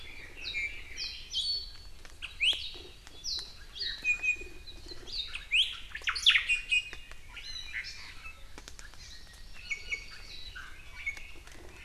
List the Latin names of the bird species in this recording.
Leiothrix lutea, Drepanis coccinea, Zosterops japonicus, Chlorodrepanis virens, Myadestes obscurus